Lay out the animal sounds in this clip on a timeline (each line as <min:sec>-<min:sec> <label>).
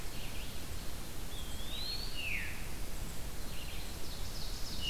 0:00.0-0:04.9 Red-eyed Vireo (Vireo olivaceus)
0:01.1-0:02.3 Eastern Wood-Pewee (Contopus virens)
0:02.0-0:02.6 Veery (Catharus fuscescens)
0:03.7-0:04.9 Ovenbird (Seiurus aurocapilla)